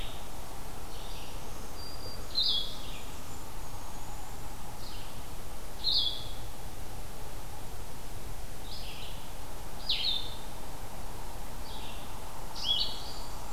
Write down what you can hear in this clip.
Blue-headed Vireo, Red-eyed Vireo, Black-throated Green Warbler, unidentified call, Blackburnian Warbler